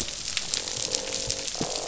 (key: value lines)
label: biophony, croak
recorder: SoundTrap 500